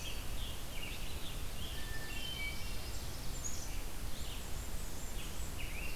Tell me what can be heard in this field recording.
Scarlet Tanager, Red-eyed Vireo, Hermit Thrush, Black-capped Chickadee, Blackburnian Warbler